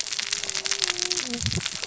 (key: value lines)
label: biophony, cascading saw
recorder: SoundTrap 600 or HydroMoth